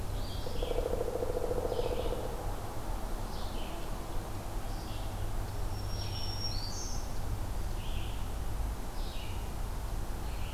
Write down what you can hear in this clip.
Red-eyed Vireo, Black-throated Green Warbler